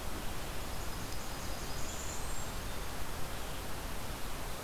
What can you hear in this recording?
Blackburnian Warbler